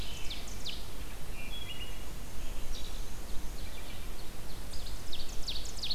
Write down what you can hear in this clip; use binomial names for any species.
Seiurus aurocapilla, Vireo olivaceus, Hylocichla mustelina, Mniotilta varia